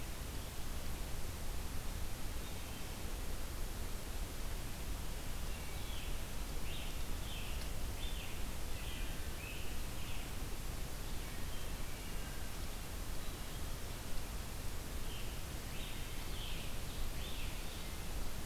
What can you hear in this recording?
Wood Thrush, Scarlet Tanager